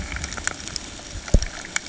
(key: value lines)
label: ambient
recorder: HydroMoth